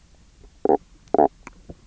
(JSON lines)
{"label": "biophony, knock croak", "recorder": "SoundTrap 300"}